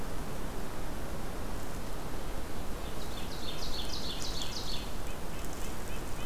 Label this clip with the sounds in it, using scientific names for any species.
Seiurus aurocapilla, Sitta canadensis